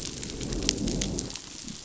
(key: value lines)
label: biophony, growl
recorder: SoundTrap 500